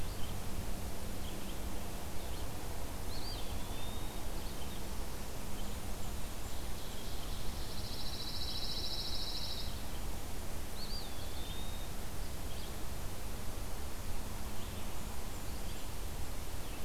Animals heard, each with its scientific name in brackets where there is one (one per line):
Eastern Wood-Pewee (Contopus virens)
Pine Warbler (Setophaga pinus)
Blackburnian Warbler (Setophaga fusca)
Ovenbird (Seiurus aurocapilla)
Red-eyed Vireo (Vireo olivaceus)